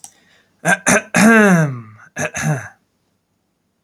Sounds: Throat clearing